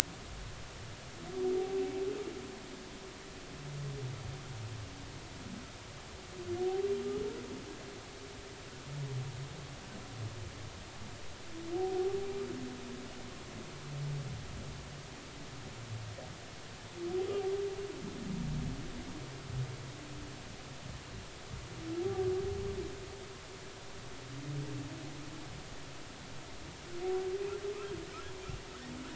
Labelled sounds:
11.7	12.2	humpback whale, 0.80 to 0.83 kHz

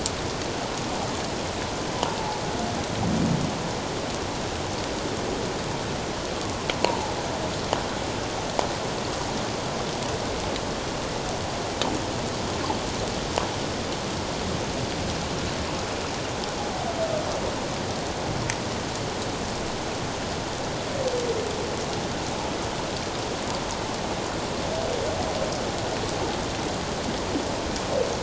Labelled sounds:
6.8	7.1	humpback whale, 0.81 to 1.1 kHz

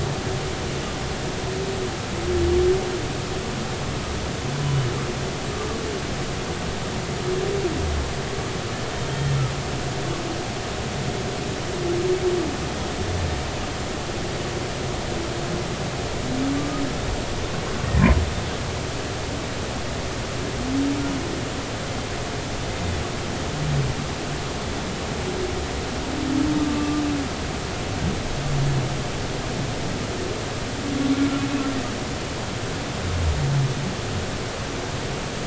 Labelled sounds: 9.1	9.3	humpback whale, 3.17 to 3.23 kHz
26.6	27.0	humpback whale, 1.15 to 1.25 kHz

